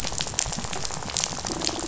{"label": "biophony, rattle", "recorder": "SoundTrap 500"}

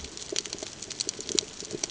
{"label": "ambient", "recorder": "HydroMoth"}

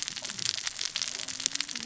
{"label": "biophony, cascading saw", "recorder": "SoundTrap 600 or HydroMoth"}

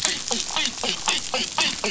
{"label": "biophony, dolphin", "recorder": "SoundTrap 500"}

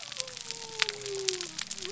{"label": "biophony", "recorder": "SoundTrap 300"}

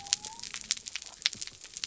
{"label": "biophony", "recorder": "SoundTrap 300"}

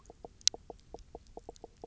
{"label": "biophony, knock croak", "recorder": "SoundTrap 300"}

